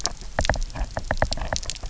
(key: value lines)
label: biophony, knock
recorder: SoundTrap 300